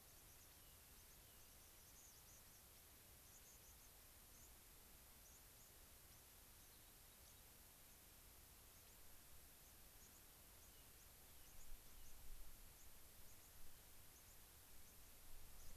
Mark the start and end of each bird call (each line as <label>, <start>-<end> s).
White-crowned Sparrow (Zonotrichia leucophrys), 0.0-4.5 s
Rock Wren (Salpinctes obsoletus), 0.5-1.5 s
White-crowned Sparrow (Zonotrichia leucophrys), 5.2-7.4 s
Rock Wren (Salpinctes obsoletus), 6.4-7.5 s
White-crowned Sparrow (Zonotrichia leucophrys), 7.8-8.0 s
White-crowned Sparrow (Zonotrichia leucophrys), 8.7-9.0 s
White-crowned Sparrow (Zonotrichia leucophrys), 9.5-15.8 s
Rock Wren (Salpinctes obsoletus), 10.6-12.1 s